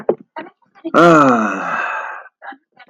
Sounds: Sigh